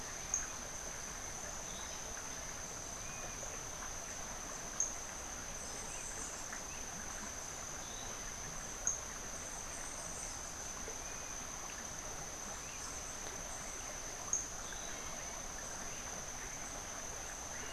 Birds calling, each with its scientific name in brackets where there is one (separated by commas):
Orange-billed Nightingale-Thrush (Catharus aurantiirostris), Dusky-capped Flycatcher (Myiarchus tuberculifer)